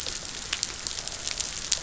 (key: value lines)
label: biophony, croak
recorder: SoundTrap 500